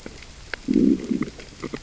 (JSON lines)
{"label": "biophony, growl", "recorder": "SoundTrap 600 or HydroMoth"}